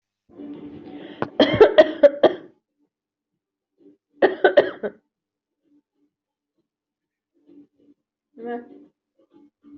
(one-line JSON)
{"expert_labels": [{"quality": "ok", "cough_type": "dry", "dyspnea": false, "wheezing": false, "stridor": false, "choking": false, "congestion": false, "nothing": true, "diagnosis": "COVID-19", "severity": "mild"}], "gender": "female", "respiratory_condition": false, "fever_muscle_pain": false, "status": "COVID-19"}